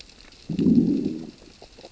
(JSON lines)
{"label": "biophony, growl", "recorder": "SoundTrap 600 or HydroMoth"}